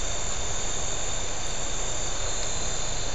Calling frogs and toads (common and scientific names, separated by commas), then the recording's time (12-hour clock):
none
7:30pm